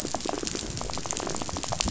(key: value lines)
label: biophony, rattle
recorder: SoundTrap 500